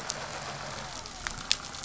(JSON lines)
{"label": "anthrophony, boat engine", "recorder": "SoundTrap 500"}